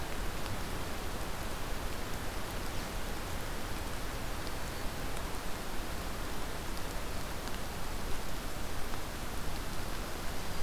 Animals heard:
forest ambience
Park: Acadia National Park